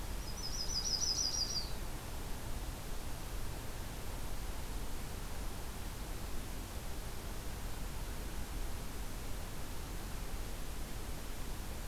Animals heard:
Yellow-rumped Warbler (Setophaga coronata)

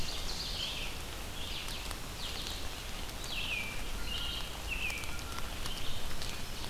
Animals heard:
Ovenbird (Seiurus aurocapilla), American Robin (Turdus migratorius), Red-eyed Vireo (Vireo olivaceus)

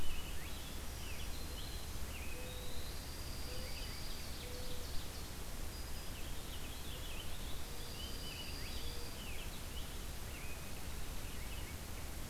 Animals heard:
Ovenbird (Seiurus aurocapilla), Black-throated Green Warbler (Setophaga virens), Dark-eyed Junco (Junco hyemalis), Purple Finch (Haemorhous purpureus)

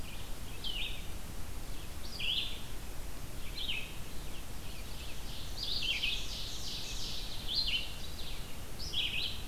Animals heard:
Red-eyed Vireo (Vireo olivaceus), Ovenbird (Seiurus aurocapilla)

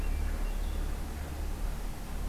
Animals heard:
Blue-headed Vireo (Vireo solitarius), Hermit Thrush (Catharus guttatus)

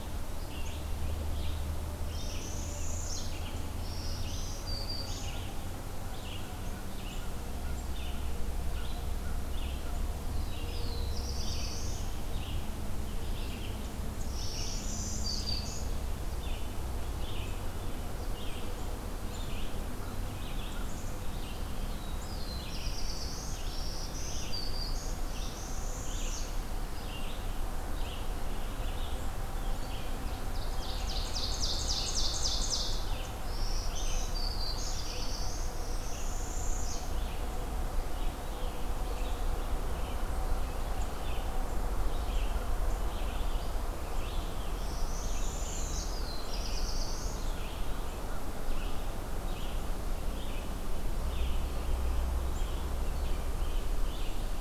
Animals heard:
Black-throated Blue Warbler (Setophaga caerulescens), Ovenbird (Seiurus aurocapilla), Northern Parula (Setophaga americana), Red-eyed Vireo (Vireo olivaceus), Black-throated Green Warbler (Setophaga virens), Black-capped Chickadee (Poecile atricapillus)

